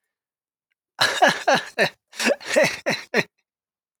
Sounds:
Laughter